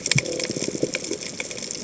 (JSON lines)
{"label": "biophony", "recorder": "HydroMoth"}
{"label": "biophony, chatter", "recorder": "HydroMoth"}